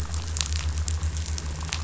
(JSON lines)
{"label": "anthrophony, boat engine", "recorder": "SoundTrap 500"}